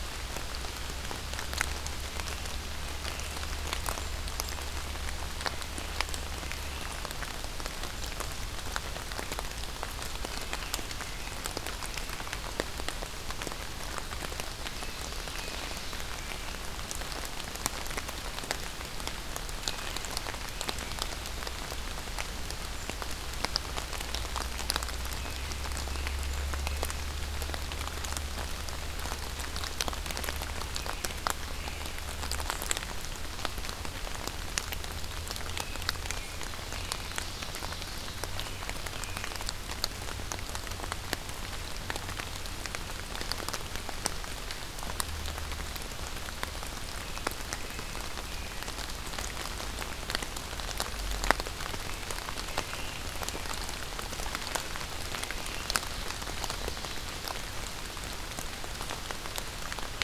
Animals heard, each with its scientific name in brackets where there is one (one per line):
Ovenbird (Seiurus aurocapilla)
American Robin (Turdus migratorius)